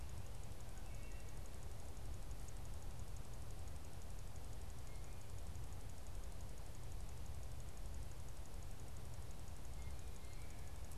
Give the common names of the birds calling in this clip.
Wood Thrush, Blue Jay